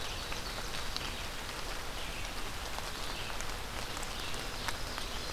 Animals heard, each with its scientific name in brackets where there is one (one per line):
Red-eyed Vireo (Vireo olivaceus)
Ovenbird (Seiurus aurocapilla)